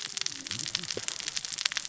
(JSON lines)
{"label": "biophony, cascading saw", "recorder": "SoundTrap 600 or HydroMoth"}